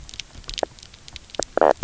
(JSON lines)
{"label": "biophony, knock croak", "recorder": "SoundTrap 300"}